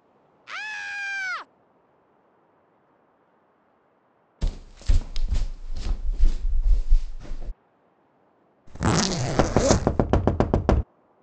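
First, at 0.5 seconds, someone screams. Then, at 4.4 seconds, footsteps can be heard. After that, at 8.7 seconds, you can hear the sound of a zipper. Over it, at 9.4 seconds, knocking is audible.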